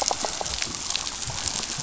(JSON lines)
{"label": "biophony", "recorder": "SoundTrap 500"}